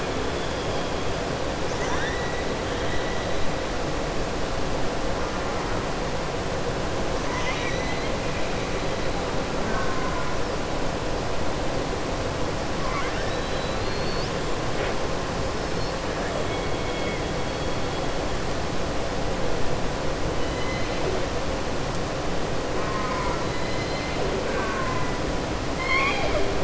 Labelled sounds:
7.2	8.1	killer whale, southern resident, 0.99 to 6.4 kHz
12.8	14.3	killer whale, southern resident, 1.0 to 5.3 kHz
16.8	17.2	killer whale, southern resident, 1.9 to 3.4 kHz
20.4	21.0	killer whale, southern resident, 2.0 to 4.1 kHz
23.4	24.1	killer whale, southern resident, 2.0 to 5.1 kHz
25.7	26.5	killer whale, southern resident, 0.57 to 5.4 kHz

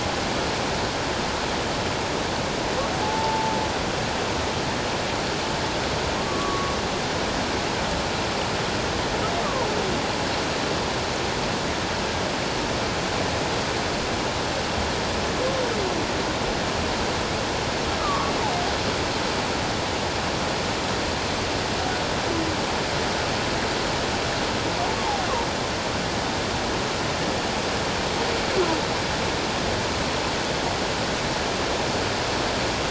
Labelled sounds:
3.0	3.5	humpback whale, 0.81 to 0.94 kHz
6.2	6.7	humpback whale, 1.0 to 1.2 kHz
18.0	18.3	humpback whale, 1.1 to 1.3 kHz
25.0	25.3	humpback whale, 0.78 to 1.2 kHz

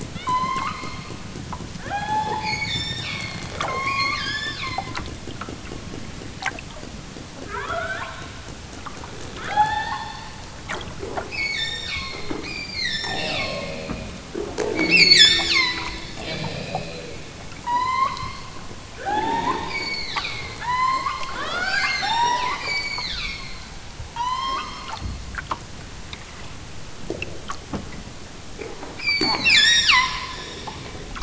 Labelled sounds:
0.1	1.1	killer whale, southern Alaska resident, 0.64 to 8.0 kHz
1.8	3.4	killer whale, southern Alaska resident, 0.50 to 8.0 kHz
3.7	5.0	killer whale, southern Alaska resident, 0.69 to 8.0 kHz
7.4	8.2	killer whale, southern Alaska resident, 0.50 to 4.3 kHz
9.4	10.3	killer whale, southern Alaska resident, 0.60 to 5.5 kHz
11.3	13.8	killer whale, southern Alaska resident, 0.69 to 8.0 kHz
14.8	16.0	killer whale, southern Alaska resident, 0.83 to 8.0 kHz
17.6	18.4	killer whale, southern Alaska resident, 0.73 to 8.0 kHz
19.0	23.6	killer whale, southern Alaska resident, 0.37 to 8.0 kHz
24.1	25.0	killer whale, southern Alaska resident, 0.73 to 8.0 kHz
29.0	30.4	killer whale, southern Alaska resident, 0.50 to 8.0 kHz

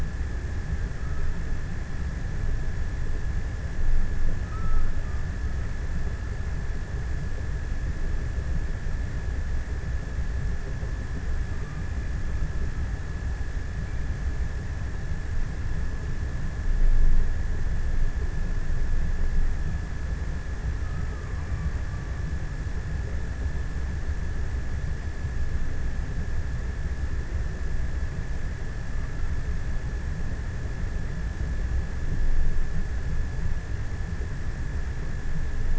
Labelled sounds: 3.9	6.2	killer whale, offshore, 0.82 to 1.7 kHz
20.2	22.9	killer whale, offshore, 0.51 to 1.6 kHz

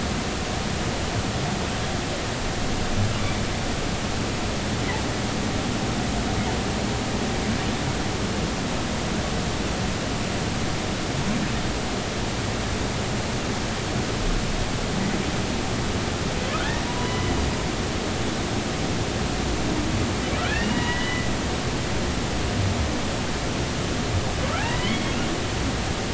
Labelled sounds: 16.5	17.3	humpback whale, 0.93 to 1.9 kHz
18.0	18.3	humpback whale, 2.9 to 3.0 kHz
20.4	21.3	humpback whale, 0.93 to 3.0 kHz
24.6	25.2	humpback whale, 0.80 to 3.4 kHz

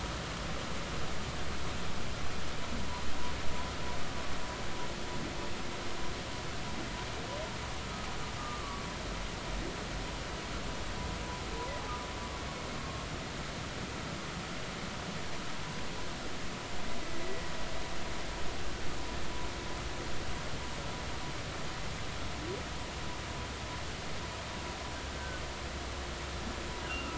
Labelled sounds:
8.4	8.8	humpback whale, 1.1 to 1.3 kHz
12.8	13.1	humpback whale, 1.0 to 1.1 kHz
25.2	25.4	humpback whale, 1.4 to 1.6 kHz
26.8	27.1	humpback whale, 2.6 to 3.0 kHz

